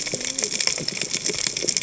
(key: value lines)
label: biophony, cascading saw
recorder: HydroMoth